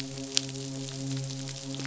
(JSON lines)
{"label": "biophony, midshipman", "recorder": "SoundTrap 500"}